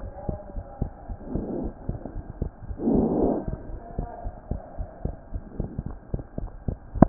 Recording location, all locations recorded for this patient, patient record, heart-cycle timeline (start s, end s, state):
pulmonary valve (PV)
aortic valve (AV)+pulmonary valve (PV)+tricuspid valve (TV)+mitral valve (MV)
#Age: Child
#Sex: Male
#Height: 115.0 cm
#Weight: 19.7 kg
#Pregnancy status: False
#Murmur: Absent
#Murmur locations: nan
#Most audible location: nan
#Systolic murmur timing: nan
#Systolic murmur shape: nan
#Systolic murmur grading: nan
#Systolic murmur pitch: nan
#Systolic murmur quality: nan
#Diastolic murmur timing: nan
#Diastolic murmur shape: nan
#Diastolic murmur grading: nan
#Diastolic murmur pitch: nan
#Diastolic murmur quality: nan
#Outcome: Normal
#Campaign: 2015 screening campaign
0.00	0.11	S1
0.11	0.26	systole
0.26	0.38	S2
0.38	0.54	diastole
0.54	0.62	S1
0.62	0.79	systole
0.79	0.90	S2
0.90	1.07	diastole
1.07	1.17	S1
1.17	1.31	systole
1.31	1.42	S2
1.42	1.61	diastole
1.61	1.72	S1
1.72	1.85	systole
1.85	1.96	S2
1.96	2.13	diastole
2.13	2.24	S1
2.24	2.39	systole
2.39	2.50	S2
2.50	2.67	diastole
2.67	2.75	S1
2.75	4.22	unannotated
4.22	4.32	S1
4.32	4.50	systole
4.50	4.58	S2
4.58	4.78	diastole
4.78	4.86	S1
4.86	5.03	systole
5.03	5.12	S2
5.12	5.31	diastole
5.31	5.41	S1
5.41	5.55	systole
5.55	5.69	S2
5.69	5.87	diastole
5.87	5.96	S1